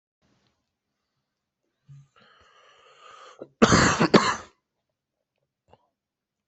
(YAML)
expert_labels:
- quality: good
  cough_type: dry
  dyspnea: false
  wheezing: false
  stridor: false
  choking: false
  congestion: false
  nothing: true
  diagnosis: healthy cough
  severity: pseudocough/healthy cough
age: 26
gender: male
respiratory_condition: true
fever_muscle_pain: true
status: COVID-19